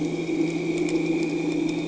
{"label": "anthrophony, boat engine", "recorder": "HydroMoth"}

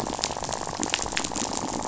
{"label": "biophony, rattle", "recorder": "SoundTrap 500"}
{"label": "biophony", "recorder": "SoundTrap 500"}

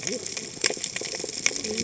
{"label": "biophony, cascading saw", "recorder": "HydroMoth"}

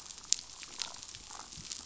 {"label": "biophony, damselfish", "recorder": "SoundTrap 500"}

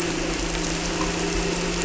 {"label": "anthrophony, boat engine", "recorder": "SoundTrap 300"}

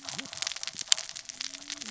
{"label": "biophony, cascading saw", "recorder": "SoundTrap 600 or HydroMoth"}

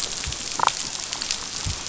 {"label": "biophony, damselfish", "recorder": "SoundTrap 500"}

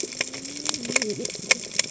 {"label": "biophony, cascading saw", "recorder": "HydroMoth"}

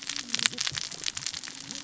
{"label": "biophony, cascading saw", "recorder": "SoundTrap 600 or HydroMoth"}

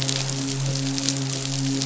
{"label": "biophony, midshipman", "recorder": "SoundTrap 500"}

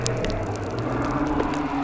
{"label": "biophony", "recorder": "SoundTrap 300"}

